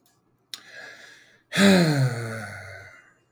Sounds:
Sigh